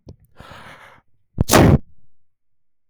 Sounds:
Sneeze